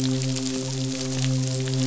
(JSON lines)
{"label": "biophony, midshipman", "recorder": "SoundTrap 500"}